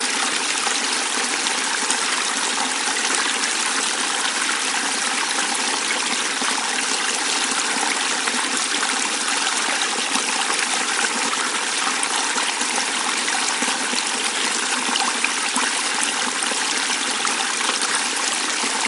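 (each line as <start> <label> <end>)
0.0 A stream of water flowing. 18.9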